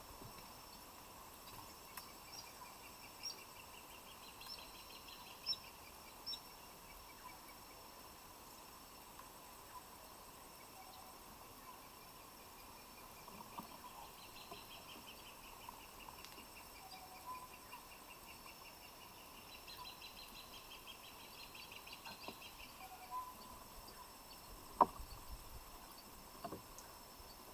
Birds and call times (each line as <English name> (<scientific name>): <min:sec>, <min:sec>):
Crowned Hornbill (Lophoceros alboterminatus): 0:04.1, 0:20.5
Cinnamon-chested Bee-eater (Merops oreobates): 0:05.5
Tropical Boubou (Laniarius major): 0:23.0